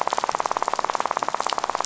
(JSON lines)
{"label": "biophony, rattle", "recorder": "SoundTrap 500"}